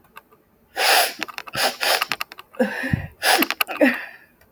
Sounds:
Sniff